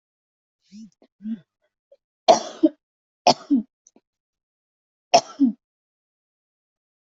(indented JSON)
{
  "expert_labels": [
    {
      "quality": "ok",
      "cough_type": "dry",
      "dyspnea": false,
      "wheezing": false,
      "stridor": false,
      "choking": false,
      "congestion": false,
      "nothing": true,
      "diagnosis": "healthy cough",
      "severity": "unknown"
    }
  ],
  "age": 21,
  "gender": "female",
  "respiratory_condition": true,
  "fever_muscle_pain": false,
  "status": "symptomatic"
}